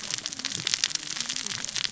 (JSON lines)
{"label": "biophony, cascading saw", "recorder": "SoundTrap 600 or HydroMoth"}